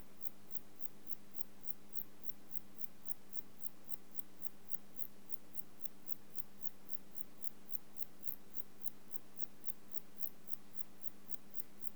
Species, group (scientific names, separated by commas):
Metrioptera saussuriana, Orthoptera